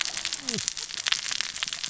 {"label": "biophony, cascading saw", "recorder": "SoundTrap 600 or HydroMoth"}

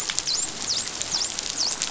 {"label": "biophony, dolphin", "recorder": "SoundTrap 500"}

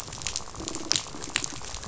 {"label": "biophony, rattle", "recorder": "SoundTrap 500"}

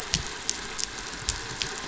{"label": "anthrophony, boat engine", "recorder": "SoundTrap 500"}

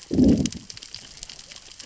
{"label": "biophony, growl", "recorder": "SoundTrap 600 or HydroMoth"}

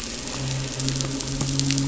{"label": "anthrophony, boat engine", "recorder": "SoundTrap 500"}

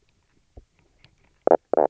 {"label": "biophony, knock croak", "recorder": "SoundTrap 300"}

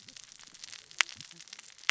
{"label": "biophony, cascading saw", "recorder": "SoundTrap 600 or HydroMoth"}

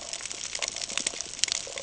{"label": "ambient", "recorder": "HydroMoth"}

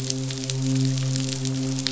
{"label": "biophony, midshipman", "recorder": "SoundTrap 500"}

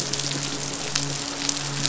{"label": "biophony, midshipman", "recorder": "SoundTrap 500"}
{"label": "biophony", "recorder": "SoundTrap 500"}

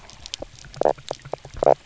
{"label": "biophony, knock croak", "recorder": "SoundTrap 300"}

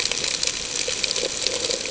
{"label": "ambient", "recorder": "HydroMoth"}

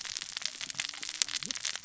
{"label": "biophony, cascading saw", "recorder": "SoundTrap 600 or HydroMoth"}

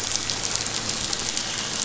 {"label": "anthrophony, boat engine", "recorder": "SoundTrap 500"}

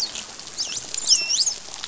{"label": "biophony, dolphin", "recorder": "SoundTrap 500"}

